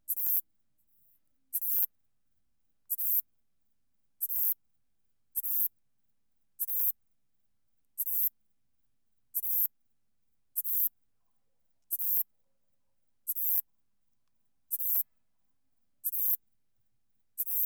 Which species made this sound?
Ephippiger diurnus